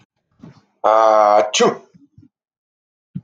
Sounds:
Sneeze